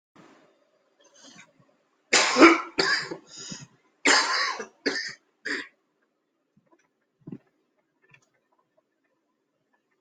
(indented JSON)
{
  "expert_labels": [
    {
      "quality": "good",
      "cough_type": "wet",
      "dyspnea": false,
      "wheezing": false,
      "stridor": false,
      "choking": false,
      "congestion": false,
      "nothing": true,
      "diagnosis": "lower respiratory tract infection",
      "severity": "mild"
    }
  ],
  "age": 35,
  "gender": "male",
  "respiratory_condition": false,
  "fever_muscle_pain": false,
  "status": "symptomatic"
}